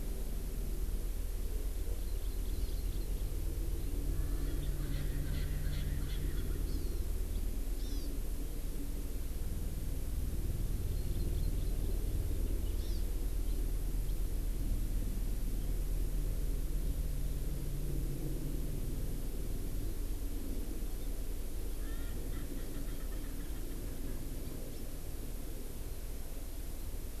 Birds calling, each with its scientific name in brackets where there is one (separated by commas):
Hawaii Amakihi (Chlorodrepanis virens), Erckel's Francolin (Pternistis erckelii)